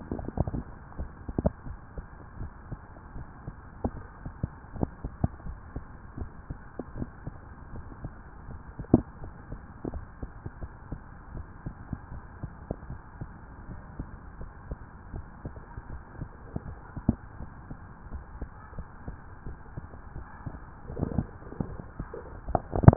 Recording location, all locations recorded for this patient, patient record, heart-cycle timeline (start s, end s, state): tricuspid valve (TV)
pulmonary valve (PV)+tricuspid valve (TV)+mitral valve (MV)
#Age: Adolescent
#Sex: Male
#Height: 162.0 cm
#Weight: 58.8 kg
#Pregnancy status: False
#Murmur: Absent
#Murmur locations: nan
#Most audible location: nan
#Systolic murmur timing: nan
#Systolic murmur shape: nan
#Systolic murmur grading: nan
#Systolic murmur pitch: nan
#Systolic murmur quality: nan
#Diastolic murmur timing: nan
#Diastolic murmur shape: nan
#Diastolic murmur grading: nan
#Diastolic murmur pitch: nan
#Diastolic murmur quality: nan
#Outcome: Normal
#Campaign: 2015 screening campaign
0.00	12.87	unannotated
12.87	12.96	S1
12.96	13.18	systole
13.18	13.26	S2
13.26	13.68	diastole
13.68	13.80	S1
13.80	13.96	systole
13.96	14.10	S2
14.10	14.37	diastole
14.37	14.48	S1
14.48	14.69	systole
14.69	14.78	S2
14.78	15.11	diastole
15.11	15.24	S1
15.24	15.42	systole
15.42	15.54	S2
15.54	15.89	diastole
15.89	16.00	S1
16.00	16.19	systole
16.19	16.30	S2
16.30	16.64	diastole
16.64	16.75	S1
16.75	16.94	systole
16.94	17.04	S2
17.04	17.38	diastole
17.38	17.48	S1
17.48	17.68	systole
17.68	17.76	S2
17.76	18.10	diastole
18.10	18.24	S1
18.24	18.39	systole
18.39	18.50	S2
18.50	18.74	diastole
18.74	18.86	S1
18.86	22.96	unannotated